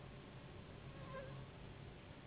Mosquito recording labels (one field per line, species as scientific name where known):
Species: Anopheles gambiae s.s.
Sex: female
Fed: unfed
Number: one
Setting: insect culture